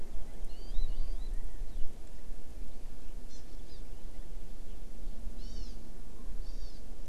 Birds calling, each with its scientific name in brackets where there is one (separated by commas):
Hawaii Amakihi (Chlorodrepanis virens)